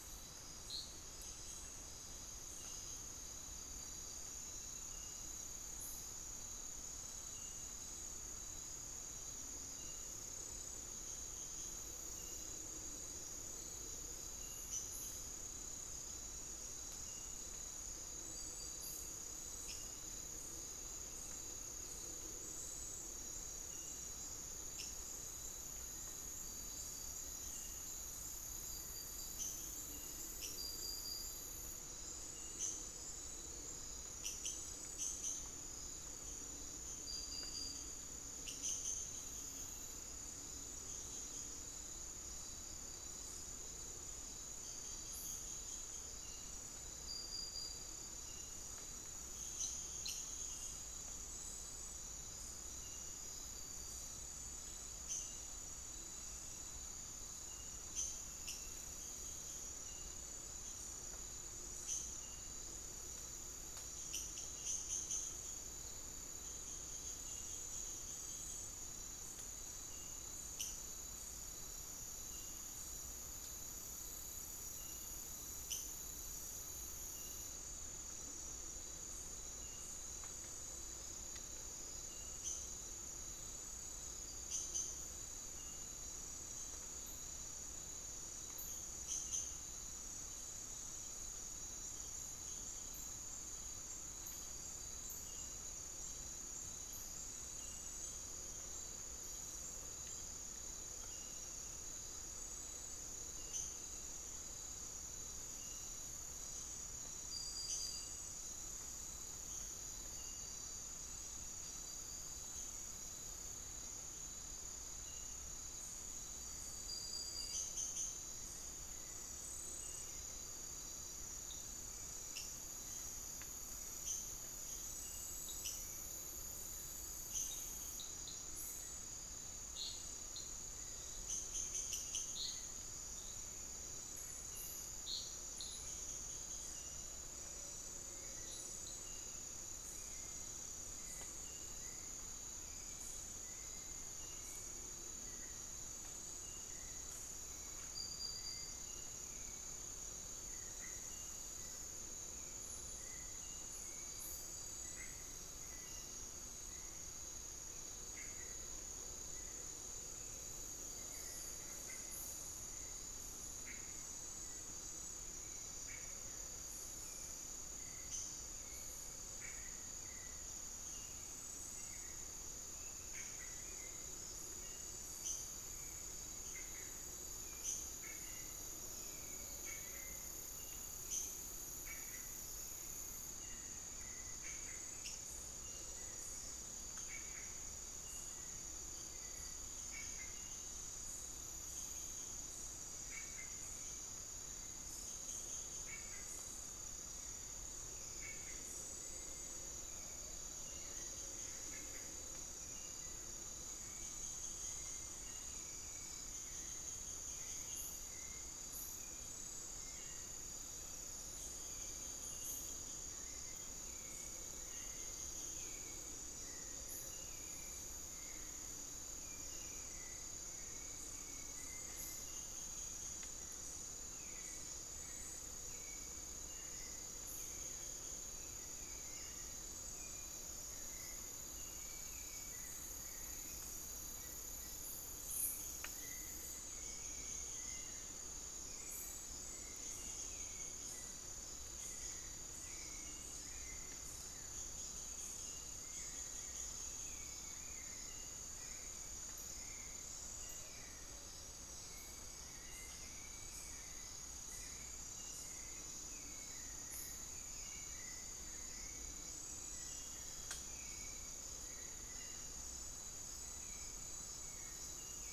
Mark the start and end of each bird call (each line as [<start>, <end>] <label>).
[23.62, 31.12] unidentified bird
[37.62, 265.33] unidentified bird
[116.92, 265.33] Hauxwell's Thrush (Turdus hauxwelli)